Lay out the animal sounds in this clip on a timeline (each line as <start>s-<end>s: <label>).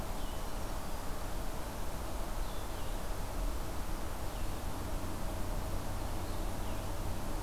0.0s-7.4s: Blue-headed Vireo (Vireo solitarius)